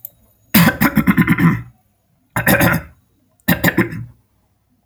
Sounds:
Throat clearing